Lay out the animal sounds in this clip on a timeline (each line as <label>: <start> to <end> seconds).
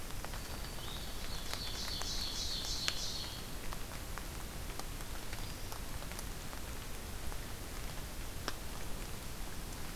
Black-throated Green Warbler (Setophaga virens): 0.0 to 0.9 seconds
Blue-headed Vireo (Vireo solitarius): 0.7 to 5.7 seconds
Ovenbird (Seiurus aurocapilla): 0.9 to 3.5 seconds